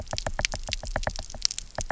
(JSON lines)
{"label": "biophony, knock", "recorder": "SoundTrap 300"}